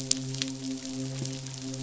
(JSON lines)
{"label": "biophony, midshipman", "recorder": "SoundTrap 500"}